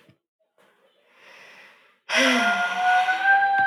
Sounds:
Sigh